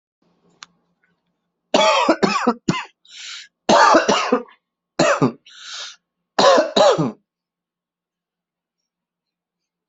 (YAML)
expert_labels:
- quality: ok
  cough_type: dry
  dyspnea: false
  wheezing: false
  stridor: false
  choking: false
  congestion: false
  nothing: true
  diagnosis: COVID-19
  severity: mild